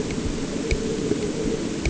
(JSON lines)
{"label": "anthrophony, boat engine", "recorder": "HydroMoth"}